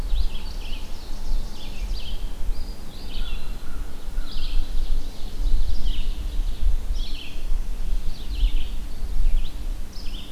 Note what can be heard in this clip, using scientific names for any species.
Seiurus aurocapilla, Vireo olivaceus, Contopus virens, Corvus brachyrhynchos